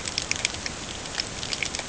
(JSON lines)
{"label": "ambient", "recorder": "HydroMoth"}